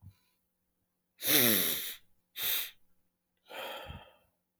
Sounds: Sniff